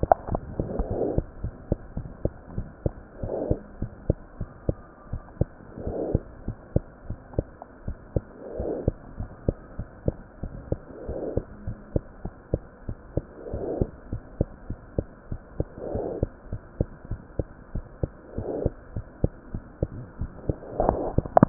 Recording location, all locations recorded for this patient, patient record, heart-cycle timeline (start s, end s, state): tricuspid valve (TV)
aortic valve (AV)+pulmonary valve (PV)+tricuspid valve (TV)+mitral valve (MV)
#Age: Child
#Sex: Male
#Height: 72.0 cm
#Weight: 7.97 kg
#Pregnancy status: False
#Murmur: Absent
#Murmur locations: nan
#Most audible location: nan
#Systolic murmur timing: nan
#Systolic murmur shape: nan
#Systolic murmur grading: nan
#Systolic murmur pitch: nan
#Systolic murmur quality: nan
#Diastolic murmur timing: nan
#Diastolic murmur shape: nan
#Diastolic murmur grading: nan
#Diastolic murmur pitch: nan
#Diastolic murmur quality: nan
#Outcome: Abnormal
#Campaign: 2015 screening campaign
0.00	1.34	unannotated
1.34	1.42	diastole
1.42	1.54	S1
1.54	1.66	systole
1.66	1.80	S2
1.80	1.96	diastole
1.96	2.10	S1
2.10	2.24	systole
2.24	2.34	S2
2.34	2.56	diastole
2.56	2.70	S1
2.70	2.84	systole
2.84	2.98	S2
2.98	3.22	diastole
3.22	3.34	S1
3.34	3.48	systole
3.48	3.62	S2
3.62	3.80	diastole
3.80	3.92	S1
3.92	4.08	systole
4.08	4.22	S2
4.22	4.40	diastole
4.40	4.48	S1
4.48	4.64	systole
4.64	4.78	S2
4.78	5.06	diastole
5.06	5.22	S1
5.22	5.40	systole
5.40	5.54	S2
5.54	5.80	diastole
5.80	5.96	S1
5.96	6.08	systole
6.08	6.24	S2
6.24	6.46	diastole
6.46	6.56	S1
6.56	6.72	systole
6.72	6.84	S2
6.84	7.08	diastole
7.08	7.18	S1
7.18	7.36	systole
7.36	7.52	S2
7.52	7.80	diastole
7.80	7.96	S1
7.96	8.12	systole
8.12	8.26	S2
8.26	8.54	diastole
8.54	8.70	S1
8.70	8.86	systole
8.86	8.98	S2
8.98	9.18	diastole
9.18	9.30	S1
9.30	9.44	systole
9.44	9.58	S2
9.58	9.78	diastole
9.78	9.86	S1
9.86	10.04	systole
10.04	10.18	S2
10.18	10.42	diastole
10.42	10.54	S1
10.54	10.68	systole
10.68	10.82	S2
10.82	11.06	diastole
11.06	11.18	S1
11.18	11.34	systole
11.34	11.46	S2
11.46	11.66	diastole
11.66	11.78	S1
11.78	11.92	systole
11.92	12.06	S2
12.06	12.22	diastole
12.22	12.32	S1
12.32	12.51	systole
12.51	12.64	S2
12.64	12.85	diastole
12.85	12.96	S1
12.96	13.12	systole
13.12	13.24	S2
13.24	13.50	diastole
13.50	13.64	S1
13.64	13.78	systole
13.78	13.90	S2
13.90	14.10	diastole
14.10	14.22	S1
14.22	14.36	systole
14.36	14.50	S2
14.50	14.68	diastole
14.68	14.78	S1
14.78	14.94	systole
14.94	15.08	S2
15.08	15.30	diastole
15.30	15.40	S1
15.40	15.56	systole
15.56	15.70	S2
15.70	15.92	diastole
15.92	16.08	S1
16.08	16.20	systole
16.20	16.30	S2
16.30	16.50	diastole
16.50	16.60	S1
16.60	16.76	systole
16.76	16.88	S2
16.88	17.10	diastole
17.10	17.20	S1
17.20	17.36	systole
17.36	17.50	S2
17.50	17.74	diastole
17.74	17.84	S1
17.84	18.00	systole
18.00	18.14	S2
18.14	18.36	diastole
18.36	18.50	S1
18.50	18.64	systole
18.64	18.76	S2
18.76	18.94	diastole
18.94	19.06	S1
19.06	19.20	systole
19.20	19.34	S2
19.34	19.52	diastole
19.52	21.49	unannotated